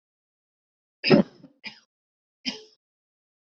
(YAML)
expert_labels:
- quality: good
  cough_type: dry
  dyspnea: false
  wheezing: false
  stridor: false
  choking: false
  congestion: false
  nothing: true
  diagnosis: upper respiratory tract infection
  severity: mild
age: 35
gender: female
respiratory_condition: true
fever_muscle_pain: true
status: symptomatic